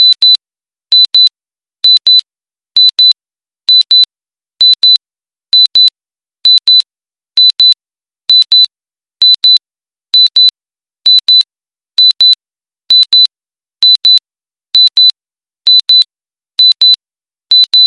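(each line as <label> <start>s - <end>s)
A loud alarm emits a steady, uninterrupted beep. 0.0s - 17.9s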